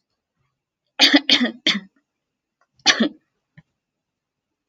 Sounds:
Throat clearing